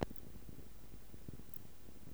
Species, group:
Phaneroptera nana
Orthoptera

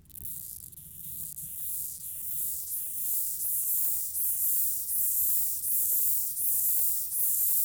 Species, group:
Stenobothrus lineatus
Orthoptera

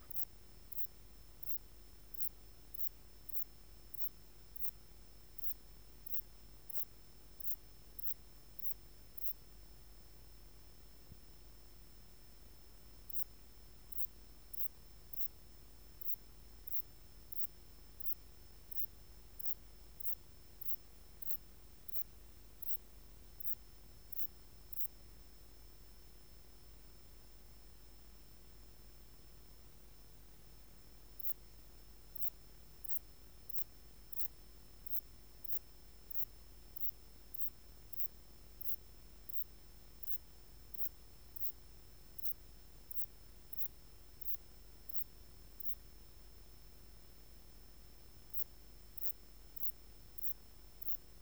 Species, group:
Ephippiger terrestris
Orthoptera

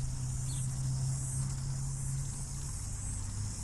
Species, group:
Amphipsalta zelandica
Cicadidae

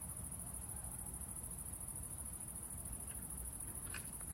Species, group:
Tettigonia viridissima
Orthoptera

